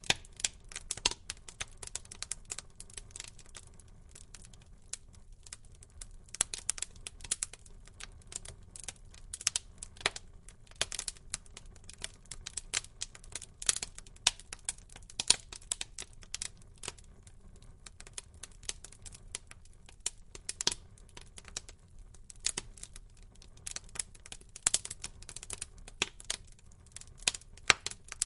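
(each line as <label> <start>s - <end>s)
Firewood crackles as it burns. 0.0s - 28.3s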